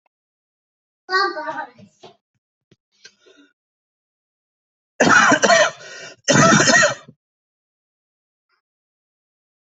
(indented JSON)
{
  "expert_labels": [
    {
      "quality": "good",
      "cough_type": "wet",
      "dyspnea": false,
      "wheezing": false,
      "stridor": false,
      "choking": false,
      "congestion": false,
      "nothing": true,
      "diagnosis": "lower respiratory tract infection",
      "severity": "mild"
    }
  ],
  "age": 38,
  "gender": "male",
  "respiratory_condition": false,
  "fever_muscle_pain": false,
  "status": "healthy"
}